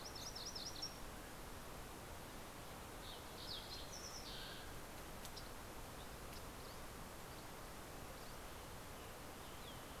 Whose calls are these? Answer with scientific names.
Geothlypis tolmiei, Passerella iliaca, Oreortyx pictus, Empidonax oberholseri, Piranga ludoviciana